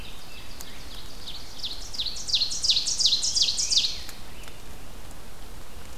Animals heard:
Ovenbird (Seiurus aurocapilla)

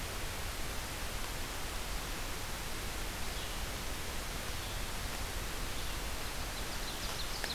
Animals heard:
Red-eyed Vireo (Vireo olivaceus)
Ovenbird (Seiurus aurocapilla)

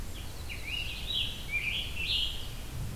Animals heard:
Winter Wren (Troglodytes hiemalis)
Scarlet Tanager (Piranga olivacea)
Red-eyed Vireo (Vireo olivaceus)

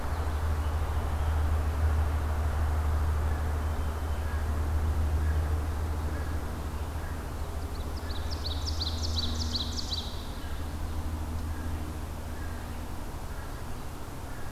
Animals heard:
Ovenbird (Seiurus aurocapilla)
American Crow (Corvus brachyrhynchos)

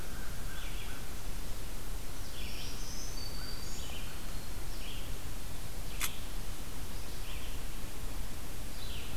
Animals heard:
Red-eyed Vireo (Vireo olivaceus)
Black-throated Green Warbler (Setophaga virens)
American Crow (Corvus brachyrhynchos)

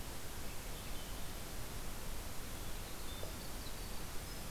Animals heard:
Swainson's Thrush (Catharus ustulatus)
Winter Wren (Troglodytes hiemalis)

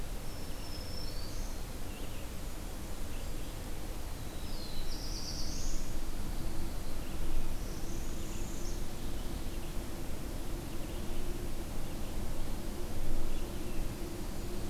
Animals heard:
Black-throated Green Warbler (Setophaga virens)
Blackburnian Warbler (Setophaga fusca)
Black-throated Blue Warbler (Setophaga caerulescens)
Northern Parula (Setophaga americana)

